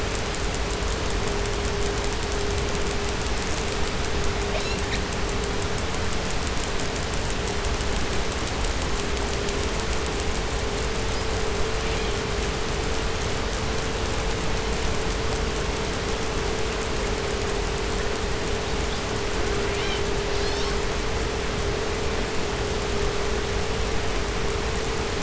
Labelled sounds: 4.4	5.2	killer whale, southern resident, 0.43 to 8.0 kHz
11.8	12.2	killer whale, 1.4 to 5.4 kHz
18.6	20.1	killer whale, southern resident, call S18, 0.67 to 8.0 kHz
20.2	21.1	killer whale, southern resident, call S19, 0.63 to 8.0 kHz

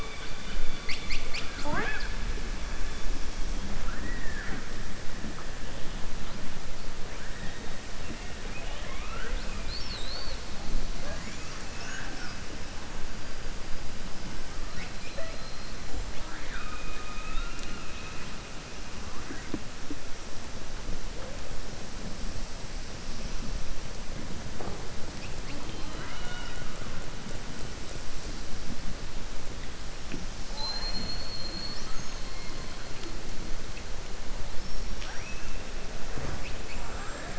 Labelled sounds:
36.6	37.3	killer whale, southern resident, 6.5 to 7.6 kHz

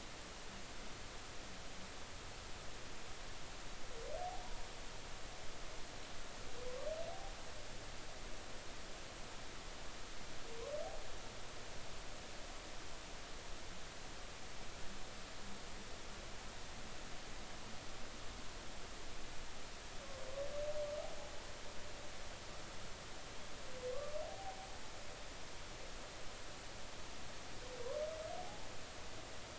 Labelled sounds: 24.2	24.6	humpback whale, 0.80 to 0.83 kHz
28.4	28.7	humpback whale, 0.80 to 0.93 kHz

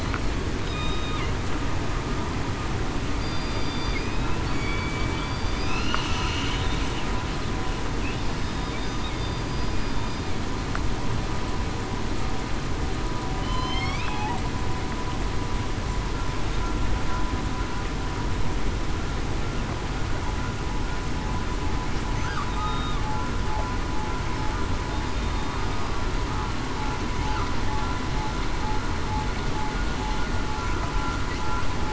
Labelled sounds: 0.6	1.2	killer whale, southern resident, 1.2 to 3.8 kHz
3.2	3.9	killer whale, southern resident, 3.5 to 4.8 kHz
4.4	4.9	killer whale, southern resident, 4.4 to 4.7 kHz
5.1	5.6	killer whale, southern resident, 3.5 to 3.6 kHz
8.4	8.8	killer whale, southern resident, 3.6 to 3.7 kHz
9.1	9.5	killer whale, southern resident, 4.7 to 4.9 kHz
13.4	14.0	killer whale, southern resident, 0.98 to 3.5 kHz
22.6	22.9	killer whale, southern resident, 3.7 to 3.8 kHz

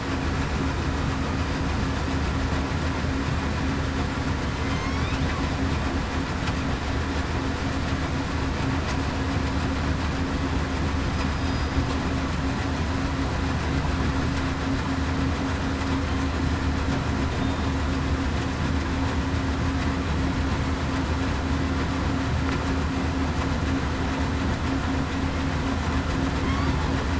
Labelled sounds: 11.3	11.7	killer whale, southern resident, 4.90 to 4.95 kHz

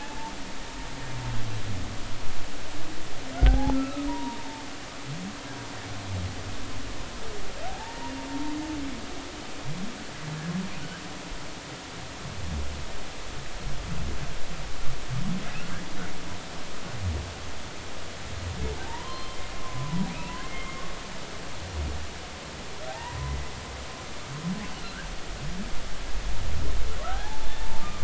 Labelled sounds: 3.3	4.6	humpback whale, 0.80 to 1.7 kHz
7.7	8.1	humpback whale, 0.80 to 1.9 kHz
18.8	20.8	humpback whale, 0.80 to 3.2 kHz
22.9	23.5	humpback whale, 0.80 to 2.0 kHz
27.0	28.0	humpback whale, 0.80 to 1.8 kHz

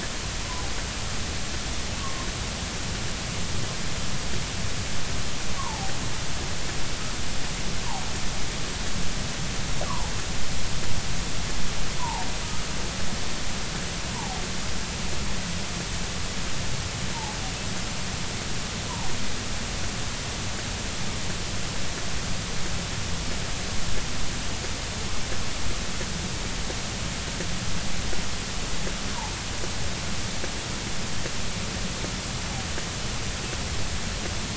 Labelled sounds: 2.0	2.3	humpback whale, 0.99 to 1.2 kHz
5.6	5.9	humpback whale, 0.80 to 1.2 kHz
9.9	10.1	humpback whale, 0.80 to 1.2 kHz
12.0	12.3	humpback whale, 0.80 to 1.1 kHz
14.1	14.4	humpback whale, 0.80 to 1.1 kHz
29.1	29.4	humpback whale, 0.80 to 1.1 kHz

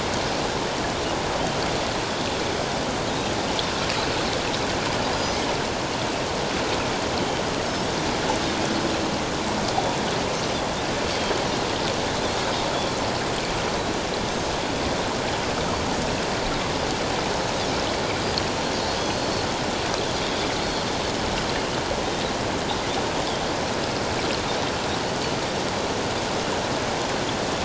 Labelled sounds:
5.1	5.4	Pacific white-sided dolphin, 4.8 to 5.1 kHz

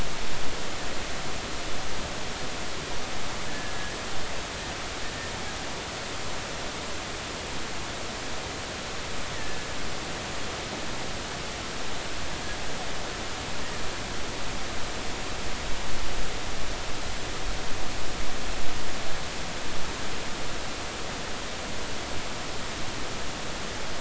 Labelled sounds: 3.5	4.0	killer whale, 1.6 to 1.8 kHz
9.3	9.6	killer whale, 1.7 to 2.0 kHz

